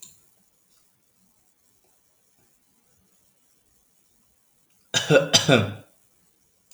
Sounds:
Cough